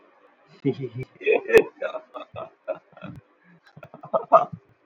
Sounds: Laughter